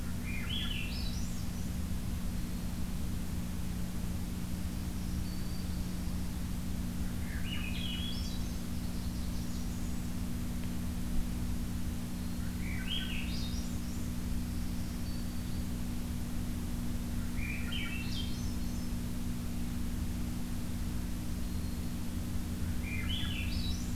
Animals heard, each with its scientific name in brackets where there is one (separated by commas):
Swainson's Thrush (Catharus ustulatus), Blackburnian Warbler (Setophaga fusca), Black-throated Green Warbler (Setophaga virens)